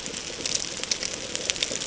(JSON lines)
{"label": "ambient", "recorder": "HydroMoth"}